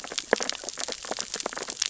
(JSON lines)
{"label": "biophony, sea urchins (Echinidae)", "recorder": "SoundTrap 600 or HydroMoth"}